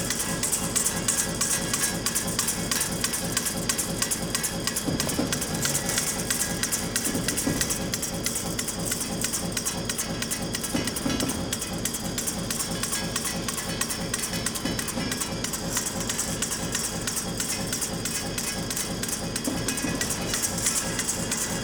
Does the chime continue to repeat?
yes